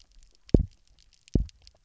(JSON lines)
{"label": "biophony, double pulse", "recorder": "SoundTrap 300"}